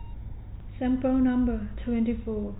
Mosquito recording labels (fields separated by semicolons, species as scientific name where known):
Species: no mosquito; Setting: cup